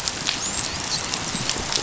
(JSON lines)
{"label": "biophony, dolphin", "recorder": "SoundTrap 500"}